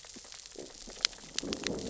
{"label": "biophony, growl", "recorder": "SoundTrap 600 or HydroMoth"}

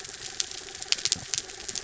{"label": "anthrophony, mechanical", "recorder": "SoundTrap 300"}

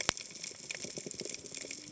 {"label": "biophony, cascading saw", "recorder": "HydroMoth"}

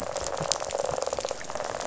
{"label": "biophony, rattle", "recorder": "SoundTrap 500"}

